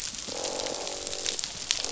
{"label": "biophony, croak", "recorder": "SoundTrap 500"}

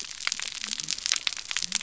{"label": "biophony", "recorder": "SoundTrap 300"}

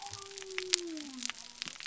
{"label": "biophony", "recorder": "SoundTrap 300"}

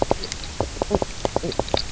{"label": "biophony, knock croak", "recorder": "SoundTrap 300"}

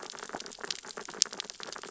{"label": "biophony, sea urchins (Echinidae)", "recorder": "SoundTrap 600 or HydroMoth"}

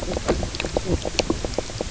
{"label": "biophony, knock croak", "recorder": "SoundTrap 300"}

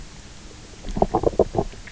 {"label": "biophony, knock croak", "recorder": "SoundTrap 300"}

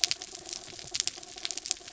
{"label": "anthrophony, mechanical", "recorder": "SoundTrap 300"}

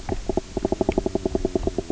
{"label": "biophony, knock croak", "recorder": "SoundTrap 300"}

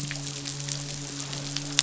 {"label": "biophony, midshipman", "recorder": "SoundTrap 500"}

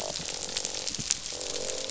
{"label": "biophony, croak", "recorder": "SoundTrap 500"}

